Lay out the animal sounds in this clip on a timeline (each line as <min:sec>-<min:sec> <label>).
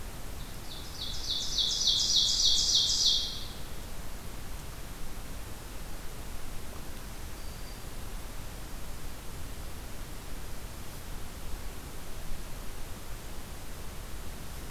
0:00.3-0:03.8 Ovenbird (Seiurus aurocapilla)
0:07.3-0:08.0 Black-throated Green Warbler (Setophaga virens)